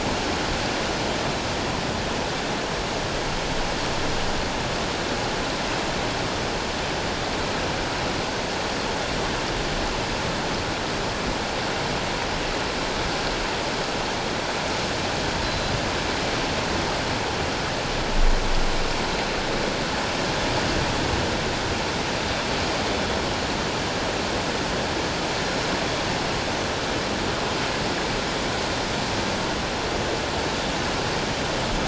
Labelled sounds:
15.4	15.7	Pacific white-sided dolphin, 4.0 to 4.1 kHz

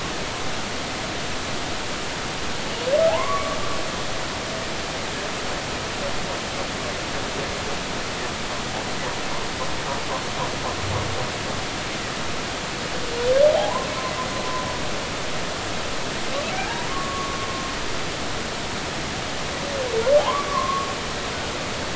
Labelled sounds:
3.1	3.6	humpback whale, 0.80 to 1.2 kHz
13.6	13.9	humpback whale, 0.80 to 1.1 kHz
16.5	17.4	humpback whale, 1.0 to 1.8 kHz
20.2	20.9	humpback whale, 0.80 to 1.2 kHz

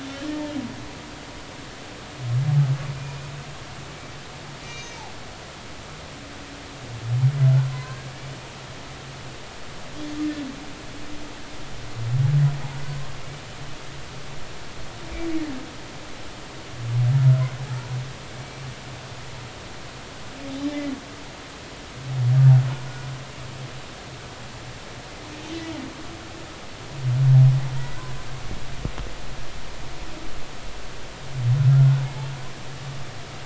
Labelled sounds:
4.7	5.0	humpback whale, 2.7 to 6.7 kHz
7.7	8.0	humpback whale, 0.96 to 1.1 kHz
18.3	18.7	humpback whale, 2.2 to 2.4 kHz
31.7	32.0	humpback whale, 1.2 to 1.5 kHz

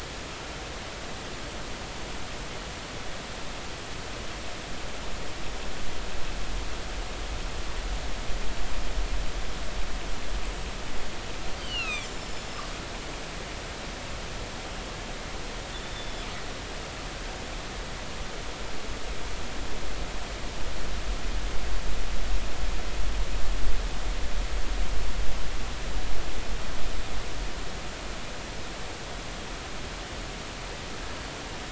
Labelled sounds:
11.6	12.6	killer whale, northern resident, G clan, 1.2 to 7.3 kHz
15.7	16.3	killer whale, northern resident, G clan, 3.4 to 3.7 kHz

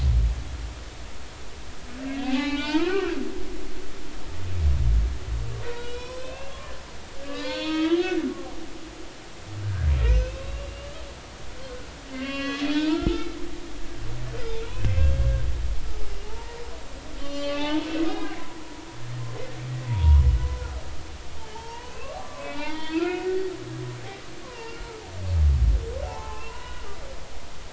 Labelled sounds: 2.2	3.1	humpback whale, 0.80 to 4.2 kHz
5.7	6.6	humpback whale, 0.90 to 5.7 kHz
7.2	8.9	humpback whale, 0.90 to 6.4 kHz
9.6	11.0	humpback whale, 1.3 to 6.3 kHz
12.1	13.3	humpback whale, 1.0 to 5.3 kHz
14.9	15.1	humpback whale, 2.6 to 2.7 kHz
16.1	16.6	humpback whale, 0.80 to 2.9 kHz
17.2	18.4	humpback whale, 1.1 to 4.7 kHz
19.7	20.3	humpback whale, 0.90 to 3.0 kHz
21.4	23.3	humpback whale, 0.83 to 4.5 kHz
24.4	25.0	humpback whale, 0.86 to 4.7 kHz
26.0	26.9	humpback whale, 0.80 to 1.5 kHz

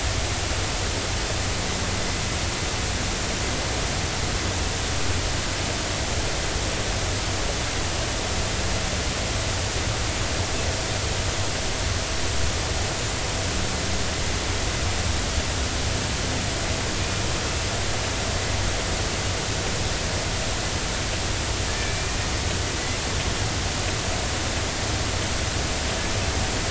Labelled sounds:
21.7	22.2	killer whale, Bigg's (transient), 1.6 to 2.5 kHz

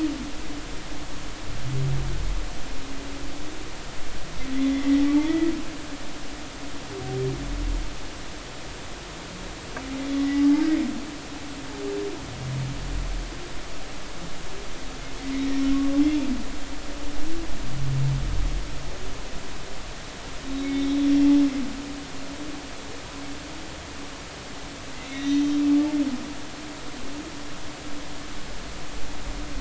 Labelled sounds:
4.7	5.5	humpback whale, 1.9 to 2.1 kHz
20.5	21.0	humpback whale, 2.1 to 3.9 kHz
25.1	25.6	humpback whale, 1.9 to 4.0 kHz

